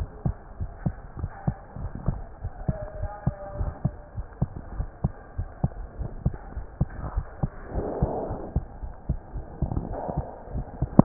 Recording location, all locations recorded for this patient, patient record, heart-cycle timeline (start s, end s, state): aortic valve (AV)
aortic valve (AV)+pulmonary valve (PV)+tricuspid valve (TV)+mitral valve (MV)
#Age: Child
#Sex: Male
#Height: 121.0 cm
#Weight: 24.9 kg
#Pregnancy status: False
#Murmur: Absent
#Murmur locations: nan
#Most audible location: nan
#Systolic murmur timing: nan
#Systolic murmur shape: nan
#Systolic murmur grading: nan
#Systolic murmur pitch: nan
#Systolic murmur quality: nan
#Diastolic murmur timing: nan
#Diastolic murmur shape: nan
#Diastolic murmur grading: nan
#Diastolic murmur pitch: nan
#Diastolic murmur quality: nan
#Outcome: Normal
#Campaign: 2015 screening campaign
0.00	1.18	unannotated
1.18	1.30	S1
1.30	1.45	systole
1.45	1.58	S2
1.58	1.80	diastole
1.80	1.91	S1
1.91	2.05	systole
2.05	2.17	S2
2.17	2.41	diastole
2.41	2.54	S1
2.54	2.66	systole
2.66	2.78	S2
2.78	3.00	diastole
3.00	3.10	S1
3.10	3.24	systole
3.24	3.34	S2
3.34	3.58	diastole
3.58	3.72	S1
3.72	3.82	systole
3.82	3.94	S2
3.94	4.13	diastole
4.13	4.26	S1
4.26	4.38	systole
4.38	4.50	S2
4.50	4.74	diastole
4.74	4.88	S1
4.88	5.01	systole
5.01	5.12	S2
5.12	5.35	diastole
5.35	5.50	S1
5.50	5.61	systole
5.61	5.74	S2
5.74	5.97	diastole
5.97	6.10	S1
6.10	6.24	systole
6.24	6.36	S2
6.36	6.54	diastole
6.54	6.66	S1
6.66	6.78	systole
6.78	6.88	S2
6.88	7.14	diastole
7.14	7.24	S1
7.24	7.40	systole
7.40	7.50	S2
7.50	7.74	diastole
7.74	7.86	S1
7.86	8.00	systole
8.00	8.12	S2
8.12	8.27	diastole
8.27	8.38	S1
8.38	8.53	systole
8.53	8.64	S2
8.64	8.80	diastole
8.80	8.92	S1
8.92	11.04	unannotated